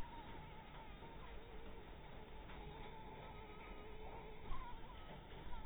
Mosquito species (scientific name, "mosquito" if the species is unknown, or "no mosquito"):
Anopheles maculatus